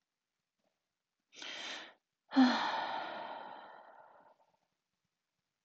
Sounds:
Sigh